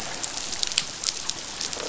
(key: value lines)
label: biophony, croak
recorder: SoundTrap 500